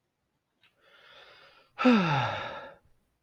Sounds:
Sigh